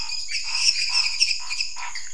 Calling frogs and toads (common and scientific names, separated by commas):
lesser tree frog (Dendropsophus minutus), Scinax fuscovarius